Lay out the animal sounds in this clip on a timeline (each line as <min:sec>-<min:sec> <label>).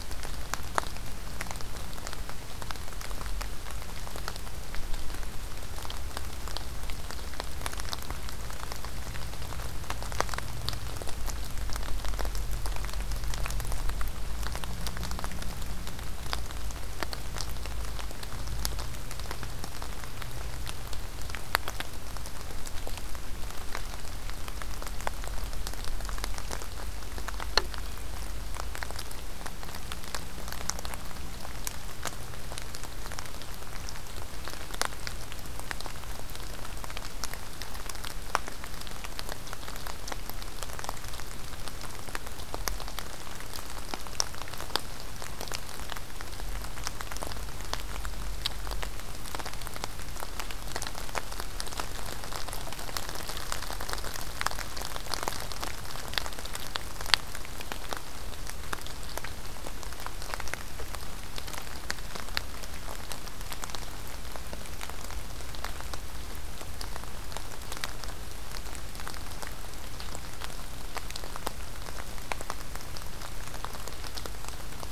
0:27.8-0:28.1 Blue Jay (Cyanocitta cristata)